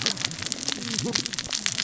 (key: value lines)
label: biophony, cascading saw
recorder: SoundTrap 600 or HydroMoth